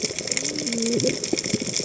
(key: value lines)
label: biophony, cascading saw
recorder: HydroMoth